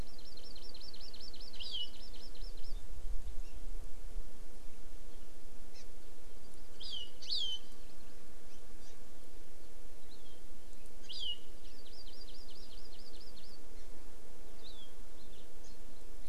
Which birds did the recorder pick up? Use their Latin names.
Chlorodrepanis virens